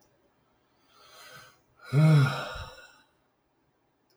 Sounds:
Sigh